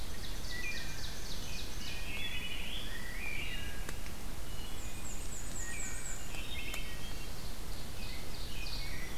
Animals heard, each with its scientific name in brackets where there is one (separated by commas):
Wood Thrush (Hylocichla mustelina), Rose-breasted Grosbeak (Pheucticus ludovicianus), Ovenbird (Seiurus aurocapilla), Black-and-white Warbler (Mniotilta varia), Black-throated Green Warbler (Setophaga virens)